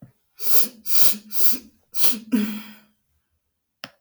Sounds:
Sniff